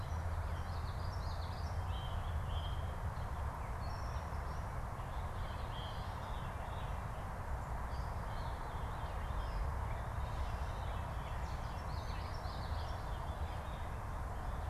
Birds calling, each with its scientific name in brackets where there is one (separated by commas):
Common Yellowthroat (Geothlypis trichas), Veery (Catharus fuscescens)